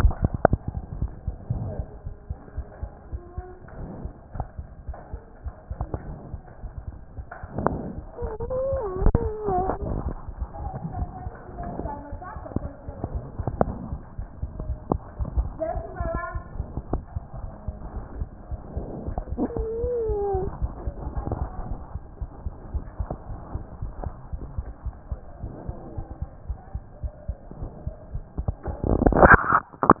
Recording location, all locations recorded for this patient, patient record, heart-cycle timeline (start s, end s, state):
mitral valve (MV)
aortic valve (AV)+mitral valve (MV)
#Age: Child
#Sex: Male
#Height: 101.0 cm
#Weight: 16.1 kg
#Pregnancy status: False
#Murmur: Absent
#Murmur locations: nan
#Most audible location: nan
#Systolic murmur timing: nan
#Systolic murmur shape: nan
#Systolic murmur grading: nan
#Systolic murmur pitch: nan
#Systolic murmur quality: nan
#Diastolic murmur timing: nan
#Diastolic murmur shape: nan
#Diastolic murmur grading: nan
#Diastolic murmur pitch: nan
#Diastolic murmur quality: nan
#Outcome: Normal
#Campaign: 2014 screening campaign
0.00	23.30	unannotated
23.30	23.40	S1
23.40	23.54	systole
23.54	23.62	S2
23.62	23.82	diastole
23.82	23.92	S1
23.92	24.04	systole
24.04	24.14	S2
24.14	24.34	diastole
24.34	24.44	S1
24.44	24.56	systole
24.56	24.66	S2
24.66	24.84	diastole
24.84	24.94	S1
24.94	25.10	systole
25.10	25.20	S2
25.20	25.42	diastole
25.42	25.52	S1
25.52	25.66	systole
25.66	25.76	S2
25.76	25.96	diastole
25.96	26.06	S1
26.06	26.20	systole
26.20	26.30	S2
26.30	26.48	diastole
26.48	26.58	S1
26.58	26.74	systole
26.74	26.82	S2
26.82	27.02	diastole
27.02	27.12	S1
27.12	27.28	systole
27.28	27.36	S2
27.36	27.60	diastole
27.60	27.70	S1
27.70	27.86	systole
27.86	27.94	S2
27.94	28.12	diastole
28.12	30.00	unannotated